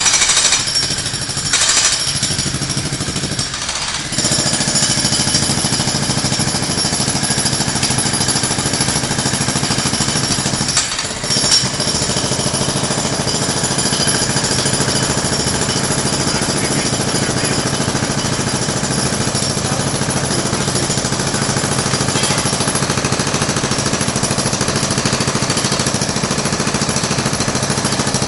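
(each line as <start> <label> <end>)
0.0 Jackhammer repeatedly hits against a sturdy surface. 28.3
16.3 Man speaking with a muffled voice. 18.4
19.5 Women talking muffled. 20.9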